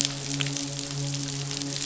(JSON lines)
{"label": "biophony, midshipman", "recorder": "SoundTrap 500"}